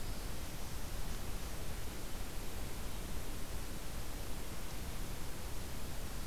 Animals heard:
forest ambience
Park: Katahdin Woods and Waters National Monument